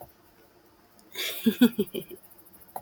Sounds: Laughter